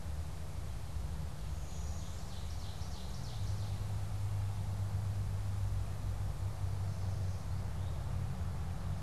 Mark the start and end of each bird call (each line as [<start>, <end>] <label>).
[1.25, 3.85] Ovenbird (Seiurus aurocapilla)
[1.45, 2.85] Blue-winged Warbler (Vermivora cyanoptera)